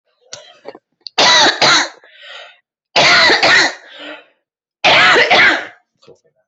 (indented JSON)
{
  "expert_labels": [
    {
      "quality": "ok",
      "cough_type": "dry",
      "dyspnea": false,
      "wheezing": false,
      "stridor": false,
      "choking": false,
      "congestion": false,
      "nothing": true,
      "diagnosis": "COVID-19",
      "severity": "mild"
    }
  ],
  "age": 43,
  "gender": "female",
  "respiratory_condition": true,
  "fever_muscle_pain": false,
  "status": "healthy"
}